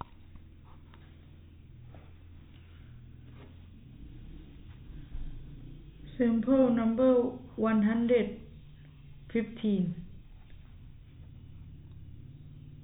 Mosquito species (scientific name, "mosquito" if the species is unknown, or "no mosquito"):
no mosquito